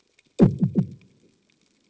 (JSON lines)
{"label": "anthrophony, bomb", "recorder": "HydroMoth"}